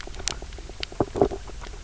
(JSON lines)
{"label": "biophony, knock croak", "recorder": "SoundTrap 300"}